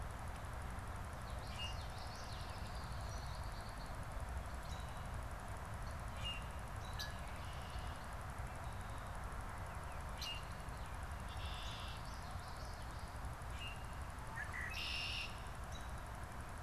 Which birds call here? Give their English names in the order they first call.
Common Yellowthroat, Red-winged Blackbird, American Robin, Common Grackle